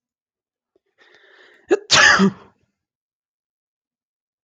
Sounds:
Sneeze